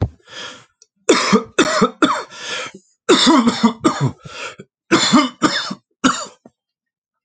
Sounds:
Cough